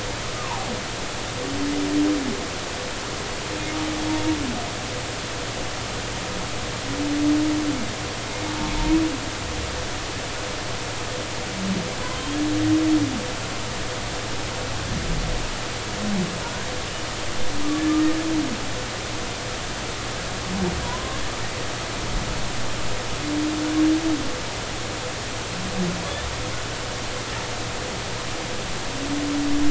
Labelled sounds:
0.3	0.7	humpback whale, 0.80 to 1.3 kHz
12.1	12.4	humpback whale, 3.0 to 3.3 kHz
18.0	18.2	humpback whale, 1.6 to 1.9 kHz
20.8	21.2	humpback whale, 0.90 to 1.1 kHz

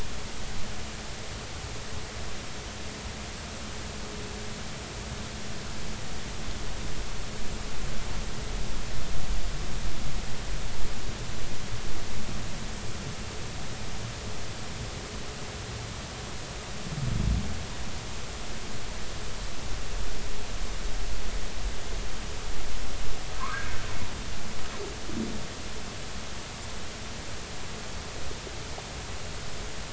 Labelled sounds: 23.4	23.8	humpback whale, 0.96 to 1.7 kHz

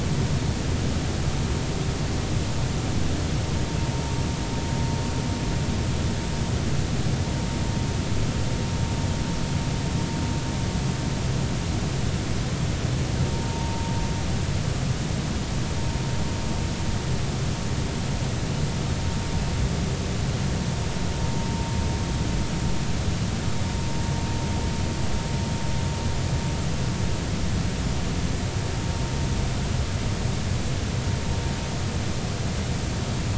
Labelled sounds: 13.5	13.9	vessel noise, 0.86 to 0.96 kHz

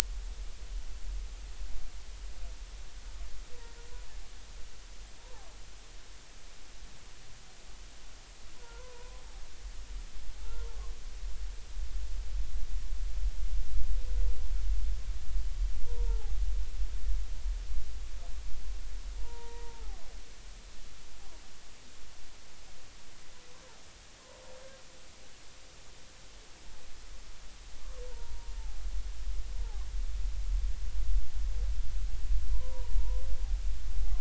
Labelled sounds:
5.2	5.5	humpback whale, 0.80 to 1.1 kHz
8.6	9.2	humpback whale, 0.90 to 1.6 kHz
10.4	10.7	humpback whale, 1.2 to 1.4 kHz
15.8	16.4	humpback whale, 0.80 to 0.99 kHz
19.2	20.0	humpback whale, 0.80 to 0.99 kHz
28.1	28.5	humpback whale, 0.90 to 1.0 kHz
32.5	33.2	humpback whale, 0.90 to 1.1 kHz

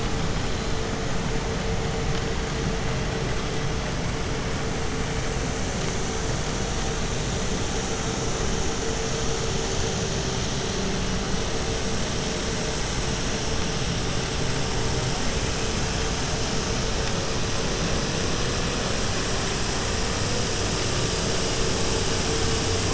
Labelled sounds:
0.3	0.9	killer whale, 3.5 to 4.4 kHz

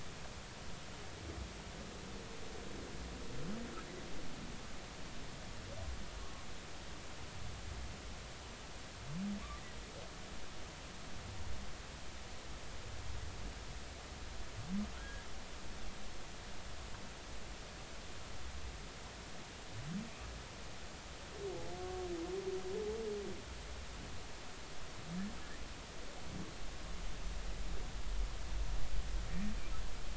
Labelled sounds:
15.0	15.3	humpback whale, 1.6 to 1.8 kHz
21.8	22.0	humpback whale, 1.1 to 1.2 kHz

